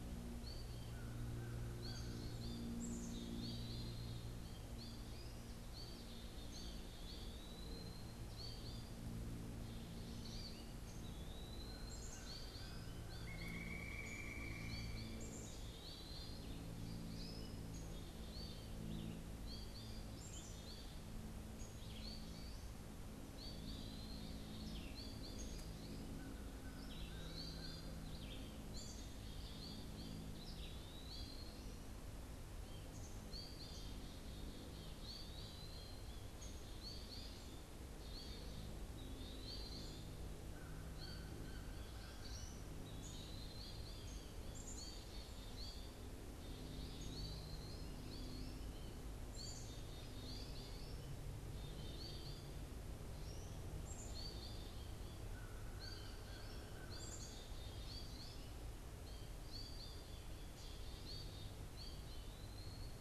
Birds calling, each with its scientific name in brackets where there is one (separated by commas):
Black-capped Chickadee (Poecile atricapillus), Pileated Woodpecker (Dryocopus pileatus), Red-eyed Vireo (Vireo olivaceus), American Goldfinch (Spinus tristis), Eastern Wood-Pewee (Contopus virens), American Crow (Corvus brachyrhynchos)